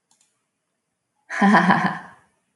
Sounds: Laughter